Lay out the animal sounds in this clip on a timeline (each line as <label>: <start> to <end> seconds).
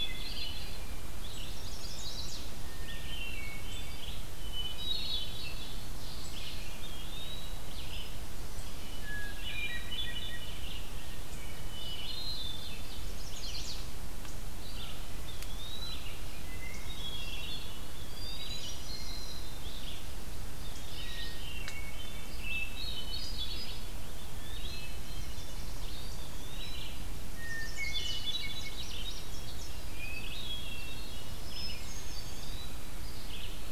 Hermit Thrush (Catharus guttatus): 0.0 to 0.9 seconds
Red-eyed Vireo (Vireo olivaceus): 0.0 to 15.0 seconds
Chestnut-sided Warbler (Setophaga pensylvanica): 1.2 to 2.5 seconds
Eastern Wood-Pewee (Contopus virens): 1.7 to 2.3 seconds
Hermit Thrush (Catharus guttatus): 2.6 to 5.7 seconds
Eastern Wood-Pewee (Contopus virens): 6.8 to 7.6 seconds
Hermit Thrush (Catharus guttatus): 8.9 to 10.5 seconds
Eastern Wood-Pewee (Contopus virens): 9.4 to 10.2 seconds
Hermit Thrush (Catharus guttatus): 11.3 to 12.8 seconds
Eastern Wood-Pewee (Contopus virens): 11.8 to 12.6 seconds
Chestnut-sided Warbler (Setophaga pensylvanica): 12.9 to 13.8 seconds
Eastern Wood-Pewee (Contopus virens): 15.2 to 16.0 seconds
Red-eyed Vireo (Vireo olivaceus): 15.8 to 33.7 seconds
Hermit Thrush (Catharus guttatus): 16.6 to 19.7 seconds
Eastern Wood-Pewee (Contopus virens): 18.0 to 18.7 seconds
Eastern Wood-Pewee (Contopus virens): 20.7 to 21.3 seconds
Hermit Thrush (Catharus guttatus): 20.9 to 23.9 seconds
Eastern Wood-Pewee (Contopus virens): 24.1 to 24.8 seconds
Hermit Thrush (Catharus guttatus): 24.3 to 25.7 seconds
Chestnut-sided Warbler (Setophaga pensylvanica): 24.9 to 26.0 seconds
Eastern Wood-Pewee (Contopus virens): 26.2 to 26.9 seconds
Hermit Thrush (Catharus guttatus): 27.4 to 32.4 seconds
Chestnut-sided Warbler (Setophaga pensylvanica): 27.4 to 28.3 seconds
Indigo Bunting (Passerina cyanea): 28.4 to 29.3 seconds
Eastern Wood-Pewee (Contopus virens): 32.2 to 32.9 seconds